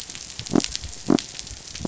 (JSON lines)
{"label": "biophony", "recorder": "SoundTrap 500"}